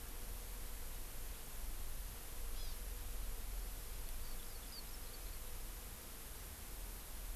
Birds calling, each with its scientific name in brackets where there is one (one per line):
Hawaii Amakihi (Chlorodrepanis virens)